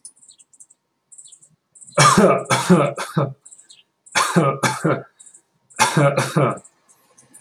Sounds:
Cough